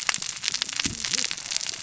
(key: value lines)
label: biophony, cascading saw
recorder: SoundTrap 600 or HydroMoth